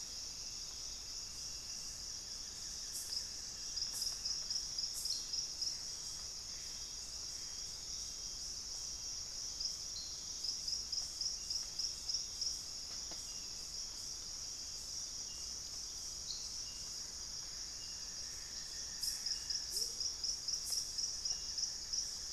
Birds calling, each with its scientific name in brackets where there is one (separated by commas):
Amazonian Motmot (Momotus momota), Buff-throated Woodcreeper (Xiphorhynchus guttatus), Gray Antbird (Cercomacra cinerascens), Hauxwell's Thrush (Turdus hauxwelli)